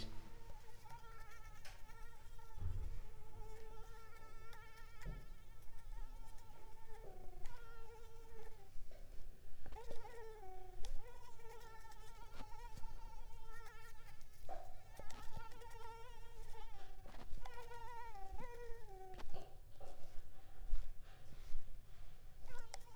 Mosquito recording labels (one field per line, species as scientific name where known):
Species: Mansonia uniformis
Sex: female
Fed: unfed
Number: one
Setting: cup